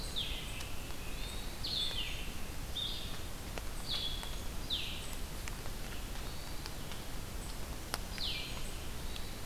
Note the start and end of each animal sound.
0.0s-5.1s: Blue-headed Vireo (Vireo solitarius)
0.9s-1.6s: Hermit Thrush (Catharus guttatus)
6.0s-6.8s: Hermit Thrush (Catharus guttatus)
8.0s-8.6s: Blue-headed Vireo (Vireo solitarius)
8.8s-9.4s: Hermit Thrush (Catharus guttatus)

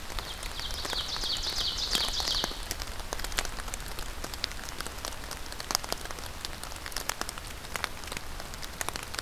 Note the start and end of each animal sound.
0.0s-2.6s: Ovenbird (Seiurus aurocapilla)

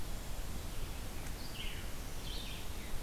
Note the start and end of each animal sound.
1.2s-3.0s: Red-eyed Vireo (Vireo olivaceus)

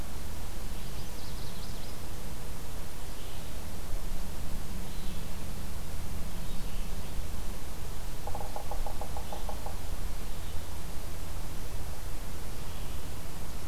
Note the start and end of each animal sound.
0.0s-13.7s: Red-eyed Vireo (Vireo olivaceus)
0.6s-2.4s: Magnolia Warbler (Setophaga magnolia)
8.2s-9.8s: Yellow-bellied Sapsucker (Sphyrapicus varius)

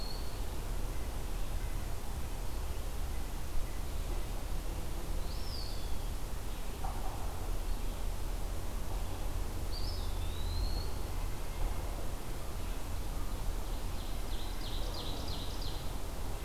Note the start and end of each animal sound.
0.0s-4.3s: White-breasted Nuthatch (Sitta carolinensis)
5.1s-6.0s: Eastern Wood-Pewee (Contopus virens)
9.6s-11.0s: Eastern Wood-Pewee (Contopus virens)
13.2s-15.9s: Ovenbird (Seiurus aurocapilla)

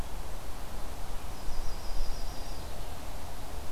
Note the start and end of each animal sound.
1.2s-2.8s: Yellow-rumped Warbler (Setophaga coronata)

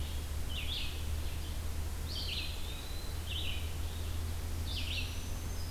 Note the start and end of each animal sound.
0.0s-5.7s: Red-eyed Vireo (Vireo olivaceus)
2.0s-3.2s: Eastern Wood-Pewee (Contopus virens)
4.8s-5.7s: Black-throated Green Warbler (Setophaga virens)

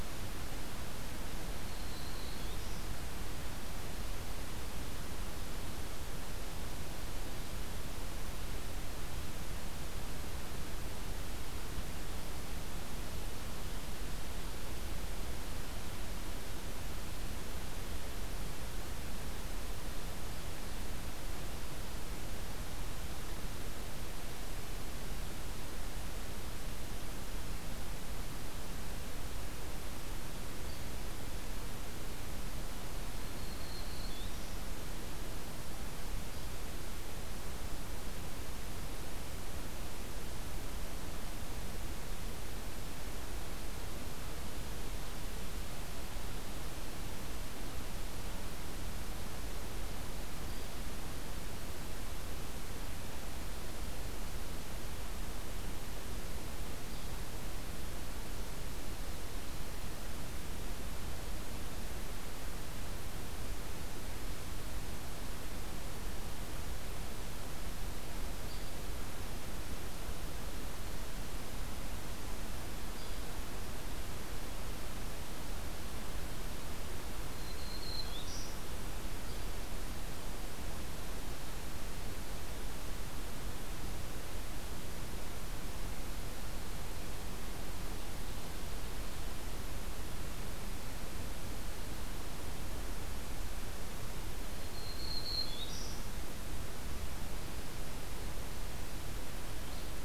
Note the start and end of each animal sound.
1.6s-2.9s: Black-throated Green Warbler (Setophaga virens)
30.6s-30.8s: Hairy Woodpecker (Dryobates villosus)
33.0s-34.5s: Black-throated Green Warbler (Setophaga virens)
36.3s-36.5s: Hairy Woodpecker (Dryobates villosus)
50.4s-50.7s: Hairy Woodpecker (Dryobates villosus)
56.8s-57.1s: Hairy Woodpecker (Dryobates villosus)
68.4s-68.7s: Hairy Woodpecker (Dryobates villosus)
72.9s-73.1s: Hairy Woodpecker (Dryobates villosus)
77.3s-78.6s: Black-throated Green Warbler (Setophaga virens)
94.6s-96.0s: Black-throated Green Warbler (Setophaga virens)
99.6s-99.9s: Hairy Woodpecker (Dryobates villosus)

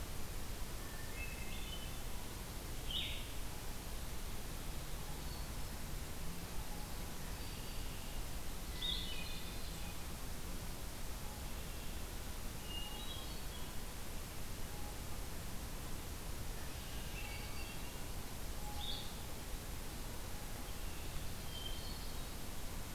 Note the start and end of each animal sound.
0.9s-2.0s: Hermit Thrush (Catharus guttatus)
2.8s-3.3s: Blue-headed Vireo (Vireo solitarius)
5.1s-6.0s: Hermit Thrush (Catharus guttatus)
6.9s-8.4s: Red-winged Blackbird (Agelaius phoeniceus)
7.1s-8.0s: Black-throated Green Warbler (Setophaga virens)
8.7s-9.2s: Blue-headed Vireo (Vireo solitarius)
8.8s-10.0s: Hermit Thrush (Catharus guttatus)
12.6s-13.4s: Hermit Thrush (Catharus guttatus)
16.5s-17.4s: Red-winged Blackbird (Agelaius phoeniceus)
17.1s-18.0s: Hermit Thrush (Catharus guttatus)
17.2s-17.9s: Black-throated Green Warbler (Setophaga virens)
18.5s-19.1s: Blue-headed Vireo (Vireo solitarius)
20.6s-21.2s: Red-winged Blackbird (Agelaius phoeniceus)
21.3s-22.4s: Hermit Thrush (Catharus guttatus)

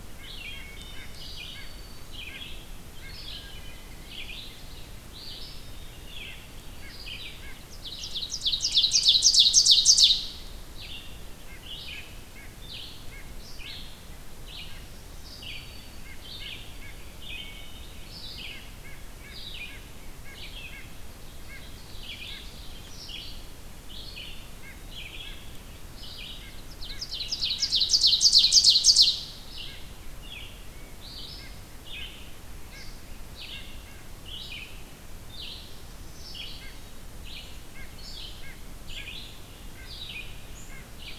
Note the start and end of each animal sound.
0.0s-3.3s: White-breasted Nuthatch (Sitta carolinensis)
0.0s-41.2s: Red-eyed Vireo (Vireo olivaceus)
0.5s-1.1s: Wood Thrush (Hylocichla mustelina)
0.8s-2.3s: Black-throated Green Warbler (Setophaga virens)
3.2s-4.1s: Wood Thrush (Hylocichla mustelina)
5.6s-7.5s: White-throated Sparrow (Zonotrichia albicollis)
6.1s-7.6s: White-breasted Nuthatch (Sitta carolinensis)
7.5s-10.5s: Ovenbird (Seiurus aurocapilla)
11.4s-22.5s: White-breasted Nuthatch (Sitta carolinensis)
14.6s-16.3s: Black-throated Green Warbler (Setophaga virens)
17.3s-18.1s: Wood Thrush (Hylocichla mustelina)
21.0s-22.8s: Ovenbird (Seiurus aurocapilla)
24.6s-27.9s: White-breasted Nuthatch (Sitta carolinensis)
26.7s-29.2s: Ovenbird (Seiurus aurocapilla)
29.6s-34.1s: White-breasted Nuthatch (Sitta carolinensis)
35.5s-36.9s: Black-throated Green Warbler (Setophaga virens)
36.3s-41.2s: White-breasted Nuthatch (Sitta carolinensis)

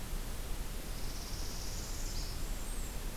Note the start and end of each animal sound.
0.8s-2.4s: Northern Parula (Setophaga americana)
1.8s-3.2s: Blackburnian Warbler (Setophaga fusca)

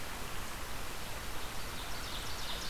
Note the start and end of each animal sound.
1.3s-2.7s: Ovenbird (Seiurus aurocapilla)

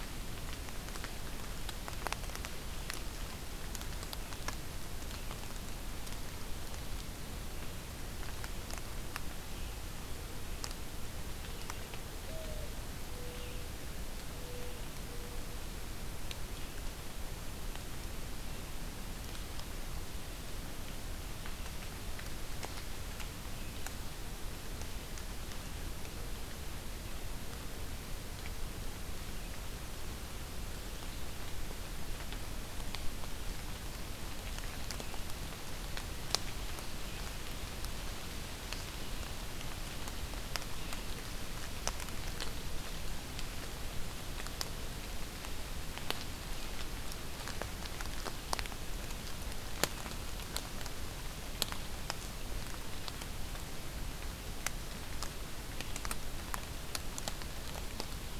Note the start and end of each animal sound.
6.7s-18.7s: Red-eyed Vireo (Vireo olivaceus)
12.2s-15.6s: Mourning Dove (Zenaida macroura)

